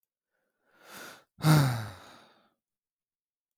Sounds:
Sigh